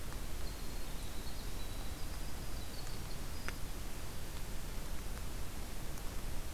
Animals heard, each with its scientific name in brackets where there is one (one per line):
Winter Wren (Troglodytes hiemalis)